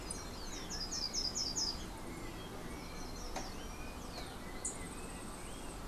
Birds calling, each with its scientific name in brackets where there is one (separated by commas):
Yellow-faced Grassquit (Tiaris olivaceus), Slate-throated Redstart (Myioborus miniatus)